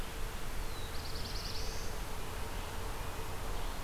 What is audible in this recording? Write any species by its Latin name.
Vireo olivaceus, Setophaga caerulescens